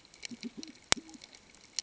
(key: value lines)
label: ambient
recorder: HydroMoth